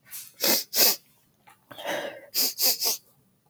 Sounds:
Sniff